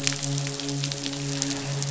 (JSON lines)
{"label": "biophony, midshipman", "recorder": "SoundTrap 500"}